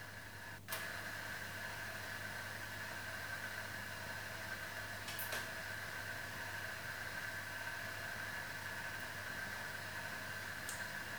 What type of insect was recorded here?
orthopteran